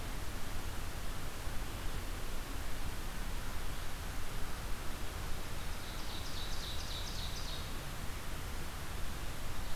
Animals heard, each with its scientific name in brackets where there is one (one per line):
Ovenbird (Seiurus aurocapilla)